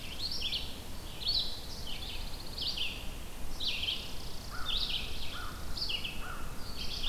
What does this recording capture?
Chipping Sparrow, Red-eyed Vireo, Pine Warbler, American Crow